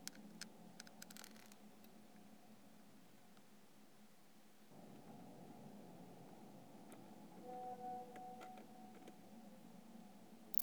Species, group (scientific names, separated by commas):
Odontura macphersoni, Orthoptera